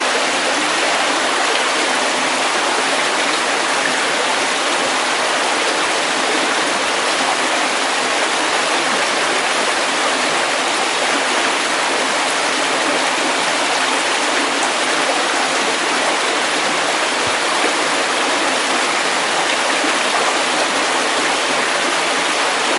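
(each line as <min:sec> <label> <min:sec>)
0:00.1 A steady stream of water is flowing. 0:22.8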